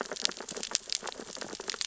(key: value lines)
label: biophony, sea urchins (Echinidae)
recorder: SoundTrap 600 or HydroMoth